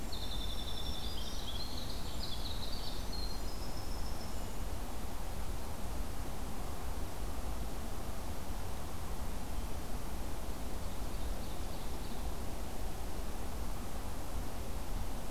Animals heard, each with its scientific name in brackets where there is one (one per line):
Black-throated Green Warbler (Setophaga virens)
Winter Wren (Troglodytes hiemalis)
Ovenbird (Seiurus aurocapilla)